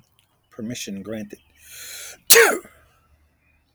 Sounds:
Sneeze